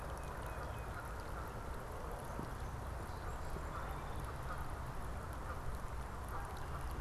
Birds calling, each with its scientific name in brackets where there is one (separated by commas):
Canada Goose (Branta canadensis), Tufted Titmouse (Baeolophus bicolor), Song Sparrow (Melospiza melodia)